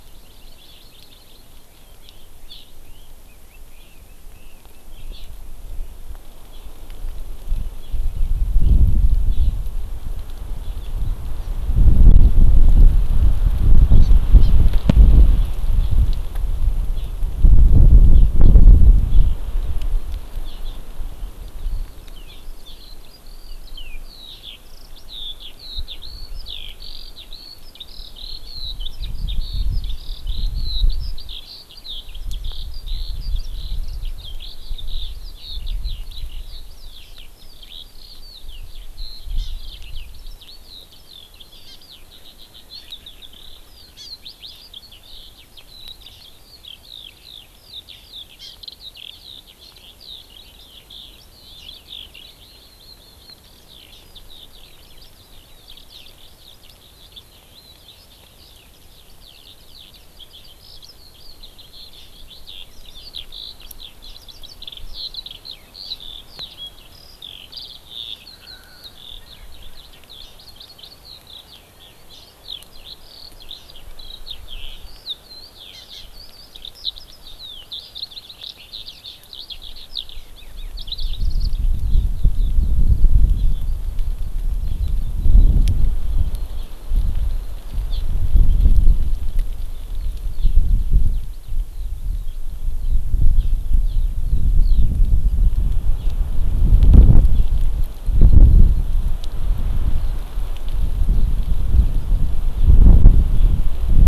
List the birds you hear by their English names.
Hawaii Amakihi, Red-billed Leiothrix, Eurasian Skylark, Erckel's Francolin